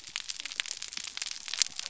{"label": "biophony", "recorder": "SoundTrap 300"}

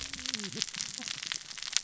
{"label": "biophony, cascading saw", "recorder": "SoundTrap 600 or HydroMoth"}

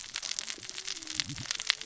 {"label": "biophony, cascading saw", "recorder": "SoundTrap 600 or HydroMoth"}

